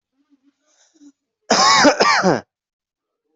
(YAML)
expert_labels:
- quality: ok
  cough_type: dry
  dyspnea: false
  wheezing: false
  stridor: false
  choking: false
  congestion: false
  nothing: false
  diagnosis: COVID-19
  severity: mild
gender: female
respiratory_condition: false
fever_muscle_pain: false
status: healthy